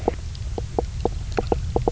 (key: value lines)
label: biophony, knock croak
recorder: SoundTrap 300